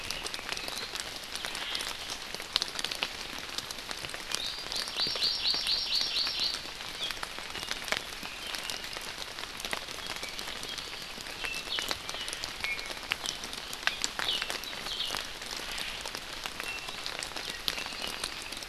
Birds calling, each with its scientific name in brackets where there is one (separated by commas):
Hawaii Amakihi (Chlorodrepanis virens), Omao (Myadestes obscurus), Iiwi (Drepanis coccinea), Red-billed Leiothrix (Leiothrix lutea), Apapane (Himatione sanguinea)